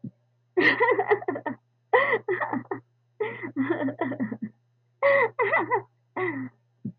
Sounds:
Laughter